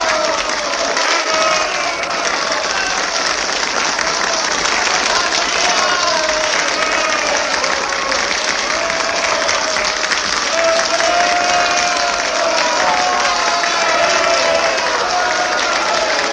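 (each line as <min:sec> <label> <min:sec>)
0:00.0 Clapping with background noise creating a lively atmosphere. 0:16.3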